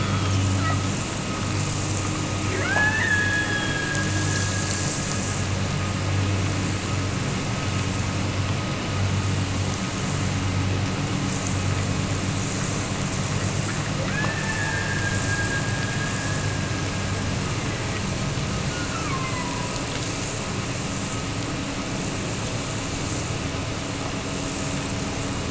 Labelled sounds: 2.5	5.1	killer whale, Bigg's (transient), Gulf of Alaska transient, 0.46 to 3.7 kHz
14.0	17.1	killer whale, Bigg's (transient), Gulf of Alaska transient, 0.41 to 2.8 kHz
18.7	19.8	killer whale, Bigg's (transient), Gulf of Alaska transient, 0.77 to 2.8 kHz

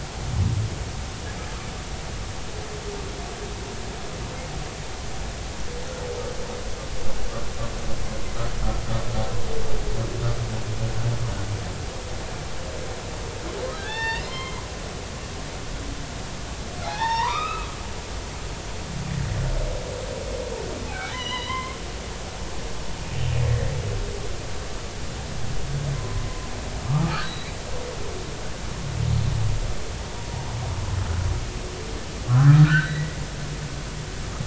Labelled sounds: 13.8	14.7	humpback whale, 0.80 to 4.6 kHz
16.8	17.7	humpback whale, 0.80 to 5.6 kHz
20.9	21.8	humpback whale, 0.93 to 4.1 kHz
22.1	22.5	humpback whale, 0.86 to 1.1 kHz
25.9	27.6	humpback whale, 0.99 to 4.7 kHz
32.3	33.2	humpback whale, 0.96 to 4.0 kHz

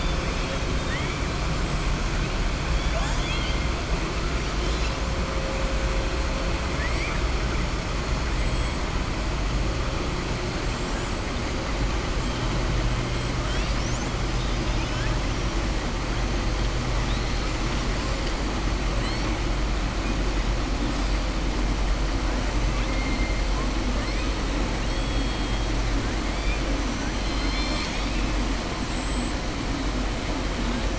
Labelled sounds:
2.7	3.6	killer whale, southern resident, 0.68 to 7.4 kHz
6.7	7.2	killer whale, southern resident, 1.1 to 2.5 kHz
22.7	23.3	killer whale, southern resident, 1.6 to 3.5 kHz
24.8	25.6	killer whale, southern resident, 2.8 to 4.3 kHz
27.1	28.3	killer whale, southern resident, 1.3 to 7.8 kHz

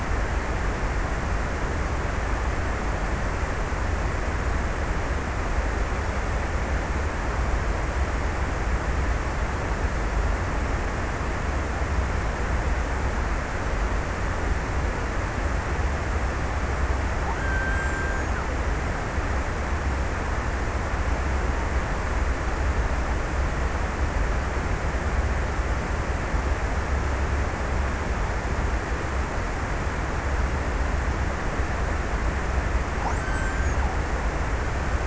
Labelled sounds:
16.6	20.5	killer whale, Bigg's (transient), 0.82 to 1.8 kHz
32.5	35.0	killer whale, Bigg's (transient), 0.81 to 1.8 kHz

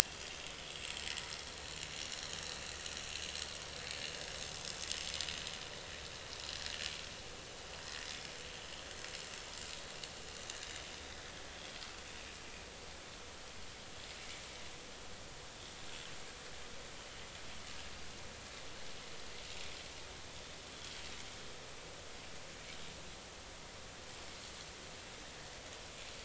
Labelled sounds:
0.0	0.4	vessel noise, 3.1 to 3.4 kHz
11.4	11.8	vessel noise, 3.1 to 3.5 kHz
20.7	21.0	vessel noise, 3.2 to 3.5 kHz

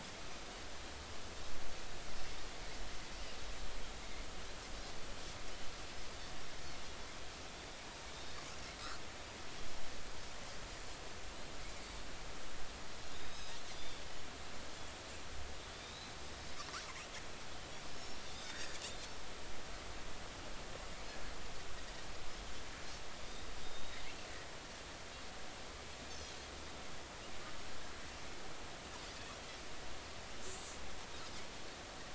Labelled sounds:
9.1	9.4	Pacific white-sided dolphin, 3.6 to 3.8 kHz
13.1	13.6	Pacific white-sided dolphin, 3.4 to 5.2 kHz
15.8	16.1	Pacific white-sided dolphin, 3.6 to 4.1 kHz
17.9	18.8	Pacific white-sided dolphin, 1.4 to 5.5 kHz
23.6	24.0	Pacific white-sided dolphin, 3.6 to 3.8 kHz
29.2	29.4	Pacific white-sided dolphin, 3.2 to 3.5 kHz

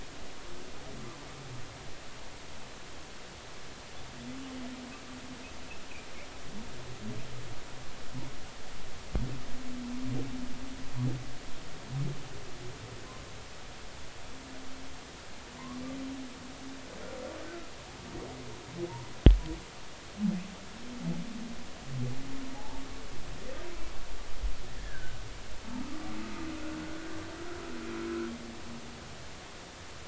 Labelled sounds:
22.5	22.8	humpback whale, 0.80 to 0.93 kHz
24.8	25.2	humpback whale, 1.4 to 1.9 kHz

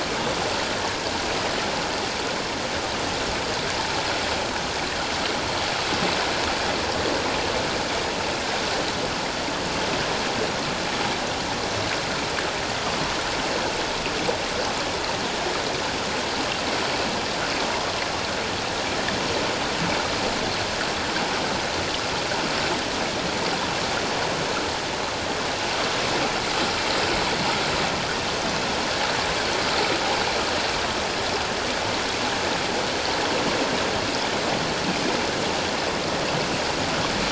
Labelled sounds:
17.7	17.9	water noise, 0.91 to 1.2 kHz

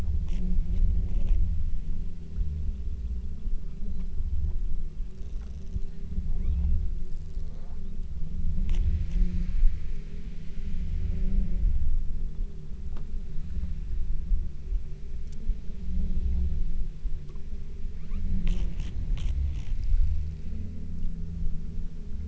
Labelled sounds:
6.4	6.9	killer whale, southern Alaska resident, 0.91 to 4.3 kHz
7.9	8.4	killer whale, southern Alaska resident, 2.2 to 4.1 kHz
18.0	18.4	killer whale, southern Alaska resident, 0.66 to 4.4 kHz

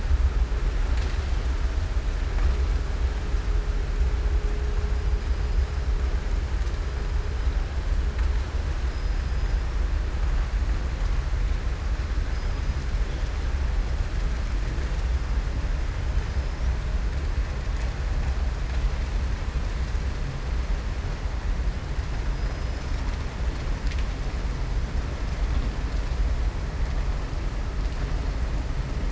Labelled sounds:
12.3	12.8	killer whale, southern resident, 4.9 to 5.9 kHz

